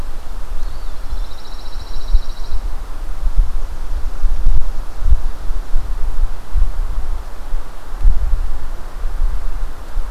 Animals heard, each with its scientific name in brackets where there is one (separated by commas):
Eastern Wood-Pewee (Contopus virens), Pine Warbler (Setophaga pinus)